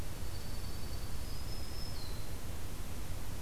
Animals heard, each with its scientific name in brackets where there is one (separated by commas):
Dark-eyed Junco (Junco hyemalis), Black-throated Green Warbler (Setophaga virens)